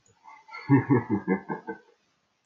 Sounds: Laughter